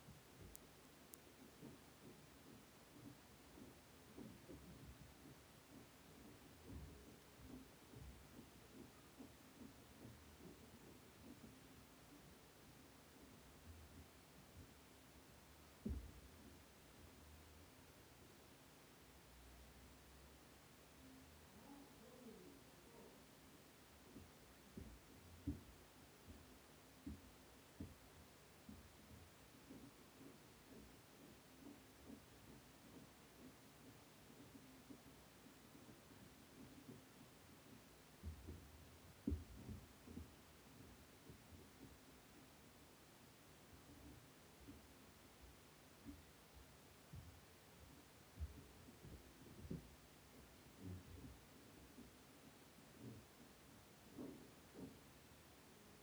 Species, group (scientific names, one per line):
Chorthippus mollis
Orthoptera